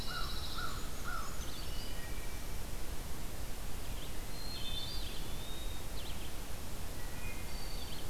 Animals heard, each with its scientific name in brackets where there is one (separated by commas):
Brown Creeper (Certhia americana), Pine Warbler (Setophaga pinus), American Crow (Corvus brachyrhynchos), Red-eyed Vireo (Vireo olivaceus), Wood Thrush (Hylocichla mustelina), Eastern Wood-Pewee (Contopus virens)